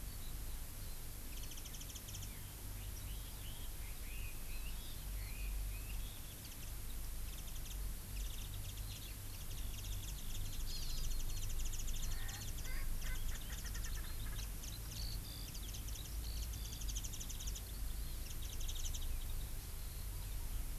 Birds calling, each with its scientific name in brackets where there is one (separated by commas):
Eurasian Skylark (Alauda arvensis), Warbling White-eye (Zosterops japonicus), Hawaii Amakihi (Chlorodrepanis virens), Red-billed Leiothrix (Leiothrix lutea), Erckel's Francolin (Pternistis erckelii)